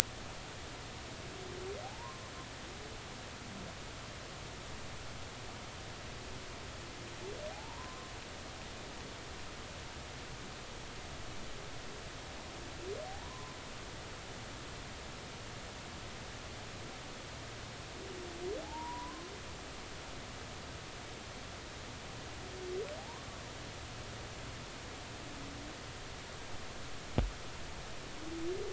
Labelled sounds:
1.8	2.2	humpback whale, 0.80 to 1.2 kHz
7.5	8.1	humpback whale, 0.80 to 1.1 kHz
13.0	13.6	humpback whale, 0.80 to 1.1 kHz
18.6	19.2	humpback whale, 0.80 to 1.2 kHz
23.0	23.2	humpback whale, 0.80 to 1.2 kHz

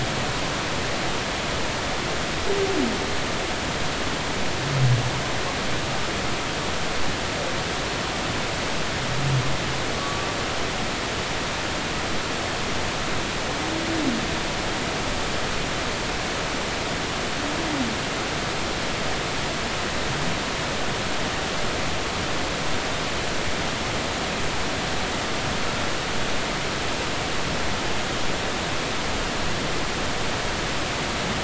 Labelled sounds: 9.9	10.3	humpback whale, 1.1 to 1.2 kHz

